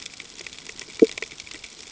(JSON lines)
{"label": "ambient", "recorder": "HydroMoth"}